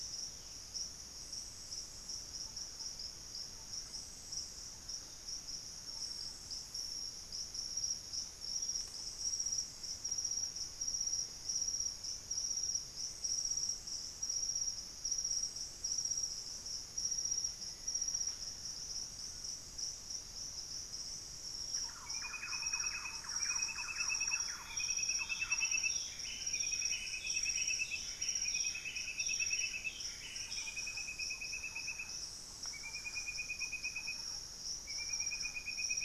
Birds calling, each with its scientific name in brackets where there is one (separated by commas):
Hauxwell's Thrush (Turdus hauxwelli), Black-faced Antthrush (Formicarius analis), Buff-breasted Wren (Cantorchilus leucotis), Band-tailed Manakin (Pipra fasciicauda), Thrush-like Wren (Campylorhynchus turdinus)